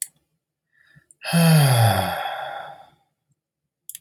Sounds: Sigh